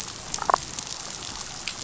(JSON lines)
{"label": "biophony, damselfish", "recorder": "SoundTrap 500"}